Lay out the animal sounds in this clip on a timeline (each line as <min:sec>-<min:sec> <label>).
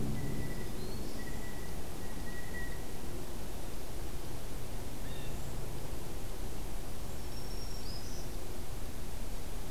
0:00.0-0:03.0 Blue Jay (Cyanocitta cristata)
0:00.3-0:01.3 Black-throated Green Warbler (Setophaga virens)
0:04.9-0:05.5 Blue Jay (Cyanocitta cristata)
0:07.2-0:08.3 Black-throated Green Warbler (Setophaga virens)